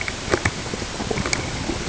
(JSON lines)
{"label": "ambient", "recorder": "HydroMoth"}